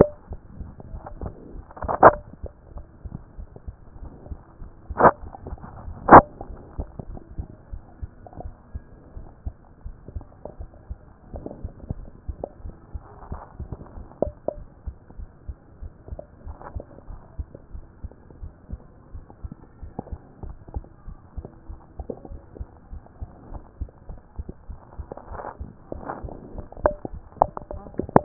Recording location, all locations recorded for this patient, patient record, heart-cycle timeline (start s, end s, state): mitral valve (MV)
aortic valve (AV)+aortic valve (AV)+pulmonary valve (PV)+tricuspid valve (TV)+mitral valve (MV)
#Age: Child
#Sex: Female
#Height: 137.0 cm
#Weight: 32.1 kg
#Pregnancy status: False
#Murmur: Absent
#Murmur locations: nan
#Most audible location: nan
#Systolic murmur timing: nan
#Systolic murmur shape: nan
#Systolic murmur grading: nan
#Systolic murmur pitch: nan
#Systolic murmur quality: nan
#Diastolic murmur timing: nan
#Diastolic murmur shape: nan
#Diastolic murmur grading: nan
#Diastolic murmur pitch: nan
#Diastolic murmur quality: nan
#Outcome: Abnormal
#Campaign: 2014 screening campaign
0.00	0.10	S1
0.10	0.28	systole
0.28	0.38	S2
0.38	0.58	diastole
0.58	0.72	S1
0.72	0.90	systole
0.90	1.02	S2
1.02	1.20	diastole
1.20	1.34	S1
1.34	1.52	systole
1.52	1.62	S2
1.62	1.82	diastole
1.82	1.96	S1
1.96	2.02	systole
2.02	2.20	S2
2.20	2.42	diastole
2.42	2.54	S1
2.54	2.74	systole
2.74	2.86	S2
2.86	3.10	diastole
3.10	3.22	S1
3.22	3.38	systole
3.38	3.46	S2
3.46	3.66	diastole
3.66	3.78	S1
3.78	4.00	systole
4.00	4.10	S2
4.10	4.30	diastole
4.30	4.42	S1
4.42	4.62	systole
4.62	4.72	S2
4.72	4.98	diastole
4.98	5.16	S1
5.16	5.42	systole
5.42	5.58	S2
5.58	5.82	diastole
5.82	5.96	S1
5.96	6.08	systole
6.08	6.24	S2
6.24	6.46	diastole
6.46	6.58	S1
6.58	6.76	systole
6.76	6.88	S2
6.88	7.08	diastole
7.08	7.20	S1
7.20	7.36	systole
7.36	7.48	S2
7.48	7.72	diastole
7.72	7.84	S1
7.84	8.02	systole
8.02	8.12	S2
8.12	8.38	diastole
8.38	8.52	S1
8.52	8.74	systole
8.74	8.86	S2
8.86	9.14	diastole
9.14	9.26	S1
9.26	9.44	systole
9.44	9.56	S2
9.56	9.84	diastole
9.84	9.96	S1
9.96	10.14	systole
10.14	10.26	S2
10.26	10.54	diastole
10.54	10.68	S1
10.68	10.90	systole
10.90	11.02	S2
11.02	11.30	diastole
11.30	11.44	S1
11.44	11.62	systole
11.62	11.74	S2
11.74	11.98	diastole
11.98	12.10	S1
12.10	12.28	systole
12.28	12.40	S2
12.40	12.64	diastole
12.64	12.76	S1
12.76	12.94	systole
12.94	13.04	S2
13.04	13.28	diastole
13.28	13.40	S1
13.40	13.58	systole
13.58	13.70	S2
13.70	13.94	diastole
13.94	14.06	S1
14.06	14.22	systole
14.22	14.34	S2
14.34	14.56	diastole
14.56	14.68	S1
14.68	14.86	systole
14.86	14.96	S2
14.96	15.18	diastole
15.18	15.28	S1
15.28	15.46	systole
15.46	15.56	S2
15.56	15.80	diastole
15.80	15.92	S1
15.92	16.10	systole
16.10	16.20	S2
16.20	16.44	diastole
16.44	16.56	S1
16.56	16.74	systole
16.74	16.84	S2
16.84	17.08	diastole
17.08	17.20	S1
17.20	17.38	systole
17.38	17.48	S2
17.48	17.72	diastole
17.72	17.84	S1
17.84	18.04	systole
18.04	18.14	S2
18.14	18.40	diastole
18.40	18.52	S1
18.52	18.72	systole
18.72	18.84	S2
18.84	19.12	diastole
19.12	19.24	S1
19.24	19.44	systole
19.44	19.56	S2
19.56	19.80	diastole
19.80	19.92	S1
19.92	20.10	systole
20.10	20.20	S2
20.20	20.44	diastole
20.44	20.56	S1
20.56	20.74	systole
20.74	20.84	S2
20.84	21.08	diastole
21.08	21.18	S1
21.18	21.36	systole
21.36	21.46	S2
21.46	21.68	diastole
21.68	21.80	S1
21.80	21.98	systole
21.98	22.08	S2
22.08	22.30	diastole
22.30	22.42	S1
22.42	22.58	systole
22.58	22.68	S2
22.68	22.92	diastole
22.92	23.02	S1
23.02	23.20	systole
23.20	23.30	S2
23.30	23.50	diastole
23.50	23.62	S1
23.62	23.80	systole
23.80	23.90	S2
23.90	24.10	diastole
24.10	24.20	S1
24.20	24.38	systole
24.38	24.48	S2
24.48	24.70	diastole
24.70	24.80	S1
24.80	24.98	systole
24.98	25.08	S2
25.08	25.30	diastole
25.30	25.42	S1
25.42	25.60	systole
25.60	25.72	S2
25.72	25.96	diastole
25.96	26.06	S1
26.06	26.22	systole
26.22	26.32	S2
26.32	26.54	diastole
26.54	26.66	S1
26.66	26.82	systole
26.82	26.94	S2
26.94	27.12	diastole
27.12	27.22	S1
27.22	27.40	systole
27.40	27.52	S2
27.52	27.74	diastole
27.74	27.90	S1
27.90	28.12	systole
28.12	28.24	S2